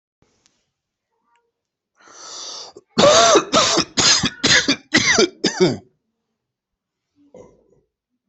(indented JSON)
{
  "expert_labels": [
    {
      "quality": "good",
      "cough_type": "wet",
      "dyspnea": false,
      "wheezing": false,
      "stridor": false,
      "choking": false,
      "congestion": false,
      "nothing": true,
      "diagnosis": "lower respiratory tract infection",
      "severity": "severe"
    }
  ],
  "age": 39,
  "gender": "male",
  "respiratory_condition": true,
  "fever_muscle_pain": false,
  "status": "symptomatic"
}